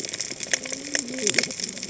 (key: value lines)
label: biophony, cascading saw
recorder: HydroMoth